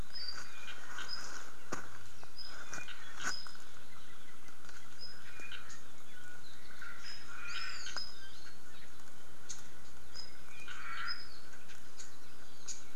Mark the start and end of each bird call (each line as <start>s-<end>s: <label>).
0.0s-1.4s: Apapane (Himatione sanguinea)
2.3s-3.8s: Apapane (Himatione sanguinea)
4.9s-5.8s: Apapane (Himatione sanguinea)
7.0s-8.6s: Apapane (Himatione sanguinea)
7.4s-8.0s: Hawaii Amakihi (Chlorodrepanis virens)
9.4s-9.8s: Red-billed Leiothrix (Leiothrix lutea)
10.1s-11.6s: Apapane (Himatione sanguinea)
10.6s-11.4s: Omao (Myadestes obscurus)
11.9s-12.2s: Red-billed Leiothrix (Leiothrix lutea)
12.5s-12.9s: Red-billed Leiothrix (Leiothrix lutea)